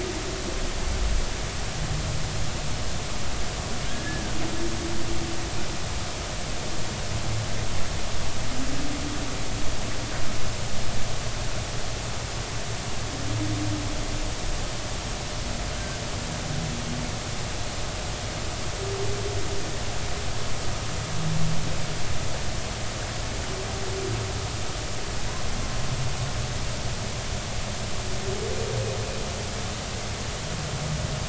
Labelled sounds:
3.9	4.3	humpback whale, 1.6 to 1.8 kHz
15.7	16.0	humpback whale, 1.4 to 1.6 kHz

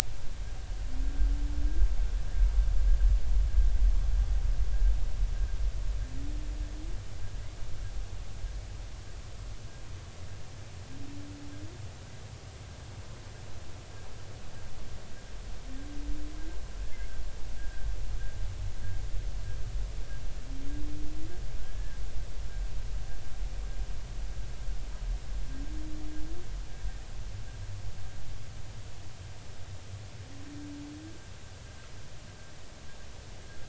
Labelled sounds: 17.6	17.9	humpback whale, 1.5 to 1.7 kHz
21.6	22.0	humpback whale, 1.6 to 1.8 kHz

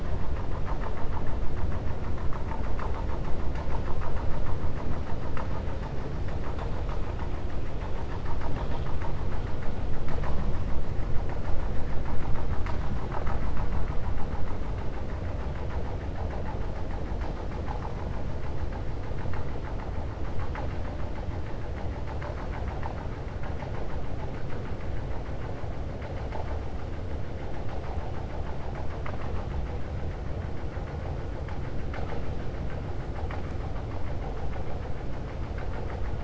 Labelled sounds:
28.6	29.5	vessel noise, 0.63 to 3.5 kHz

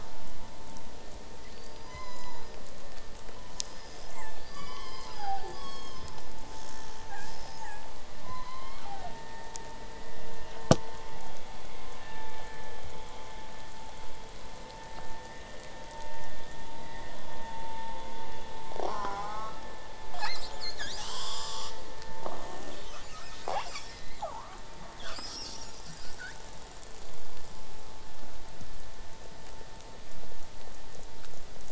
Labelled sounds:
3.6	4.4	killer whale, southern resident, call S37ii, 0.70 to 8.0 kHz
4.4	5.5	killer whale, southern resident, call S36, 0.50 to 8.0 kHz
5.5	6.3	killer whale, southern resident, call S16, 0.81 to 8.0 kHz
6.5	7.9	killer whale, southern resident, call S37ii, 0.70 to 8.0 kHz
8.2	9.1	killer whale, southern resident, call S01, 0.43 to 6.3 kHz
10.0	15.0	vessel noise, 0 to 8.0 kHz
18.8	19.6	killer whale, southern resident, J pod, call S04, 0.23 to 7.9 kHz
20.1	21.7	killer whale, southern resident, call S10, 0.56 to 8.0 kHz
22.2	23.5	killer whale, southern resident, J pod, call S10, 0.19 to 8.0 kHz
23.5	24.0	killer whale, southern resident, J pod, call S37i, 0.19 to 8.0 kHz
24.0	24.6	killer whale, 0.40 to 8.0 kHz
25.0	26.4	killer whale, southern resident, call S10, 0.44 to 8.0 kHz

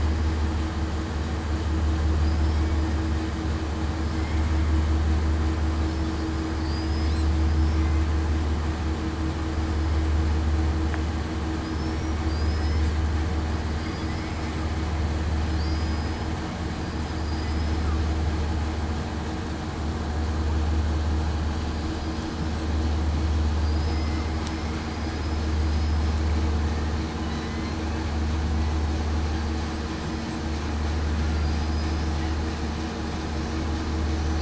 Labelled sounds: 6.6	7.1	killer whale, southern resident, 4.5 to 5.1 kHz
11.7	12.8	killer whale, southern resident, 4.6 to 5.8 kHz
13.7	14.1	killer whale, southern resident, 4.7 to 5.0 kHz
15.6	16.3	killer whale, southern resident, 4.5 to 5.1 kHz
17.2	17.8	killer whale, southern resident, 4.7 to 5.2 kHz
23.9	24.3	killer whale, southern resident, 2.0 to 2.1 kHz
25.6	26.0	killer whale, southern resident, 4.9 to 5.1 kHz
29.3	29.7	killer whale, southern resident, 4.7 to 4.8 kHz
31.4	31.7	killer whale, southern resident, 4.7 to 5.0 kHz

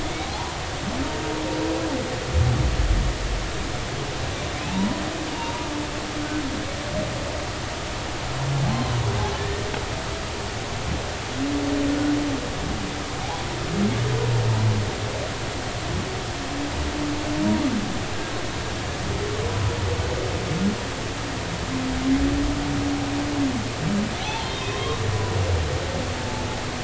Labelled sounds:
0.2	0.6	humpback whale, 0.80 to 1.1 kHz
4.6	5.7	humpback whale, 0.80 to 3.9 kHz
9.4	9.6	humpback whale, 1.7 to 1.9 kHz
24.2	25.0	humpback whale, 0.80 to 3.3 kHz
26.2	26.4	humpback whale, 0.83 to 0.93 kHz

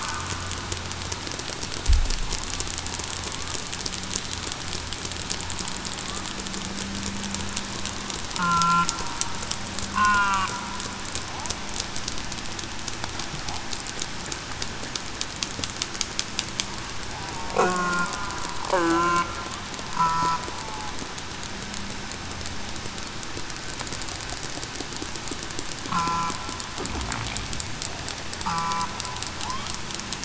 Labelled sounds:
8.4	8.9	killer whale, southern resident, 0.98 to 1.1 kHz
9.9	10.4	killer whale, southern resident, 0.91 to 1.1 kHz
17.6	18.1	killer whale, southern resident, 1.4 to 1.5 kHz
18.7	19.2	killer whale, southern resident, 0.30 to 1.7 kHz
19.9	20.9	killer whale, southern resident, 0.77 to 1.9 kHz
25.9	26.3	killer whale, southern resident, 1.0 to 1.2 kHz
28.4	28.8	killer whale, southern resident, 0.82 to 0.98 kHz

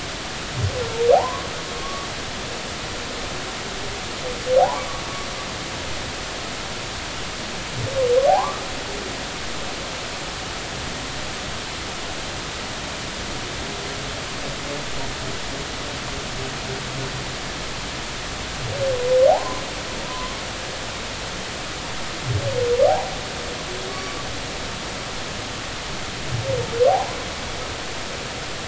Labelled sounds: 1.1	2.1	humpback whale, 0.80 to 1.2 kHz
4.6	4.9	humpback whale, 0.80 to 1.2 kHz
8.3	8.6	humpback whale, 0.80 to 1.3 kHz
19.3	20.4	humpback whale, 0.80 to 1.2 kHz
22.9	23.1	humpback whale, 0.80 to 0.99 kHz
23.9	24.2	humpback whale, 1.1 to 2.3 kHz
26.9	27.2	humpback whale, 0.80 to 1.1 kHz

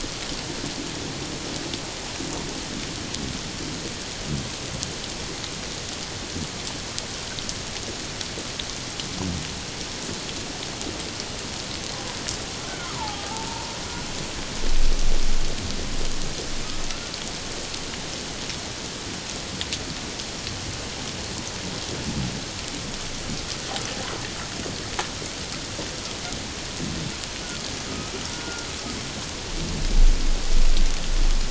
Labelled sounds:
12.7	13.7	humpback whale, 0.78 to 1.6 kHz
28.3	28.7	humpback whale, 1.3 to 1.5 kHz

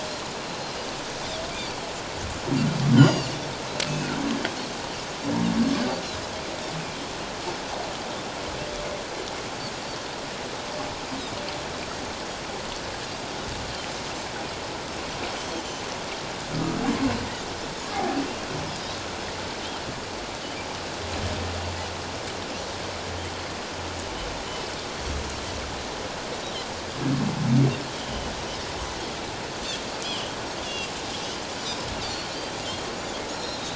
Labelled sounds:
1.6	1.9	Pacific white-sided dolphin, 4.3 to 4.8 kHz
3.0	3.3	Pacific white-sided dolphin, 2.7 to 7.3 kHz
3.9	4.1	Pacific white-sided dolphin, 2.4 to 2.7 kHz
16.5	16.8	humpback whale, 1.2 to 1.4 kHz
17.9	18.2	humpback whale, 0.78 to 0.84 kHz
28.0	28.3	Pacific white-sided dolphin, 2.9 to 3.2 kHz
30.0	30.3	Pacific white-sided dolphin, 2.8 to 3.4 kHz
30.6	30.9	Pacific white-sided dolphin, 2.7 to 3.6 kHz
32.0	32.3	Pacific white-sided dolphin, 4.2 to 4.8 kHz
33.3	33.7	Pacific white-sided dolphin, 3.6 to 7.0 kHz

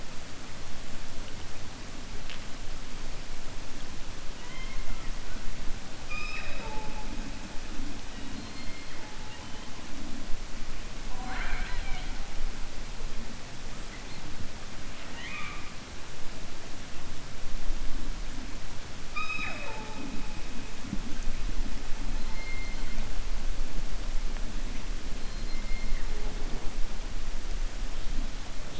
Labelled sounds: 4.3	5.0	killer whale, 0.98 to 3.2 kHz
15.0	15.6	killer whale, 0.98 to 3.7 kHz

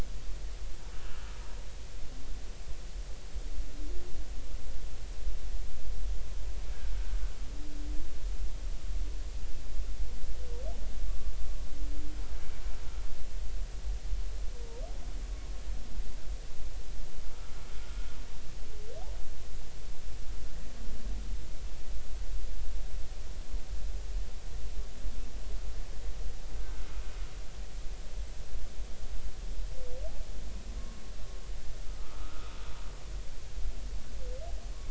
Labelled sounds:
0.9	1.2	humpback whale, 2.6 to 3.0 kHz
11.1	11.3	humpback whale, 1.1 to 1.2 kHz
26.6	26.9	humpback whale, 1.3 to 1.6 kHz
30.8	32.5	humpback whale, 1.0 to 1.5 kHz

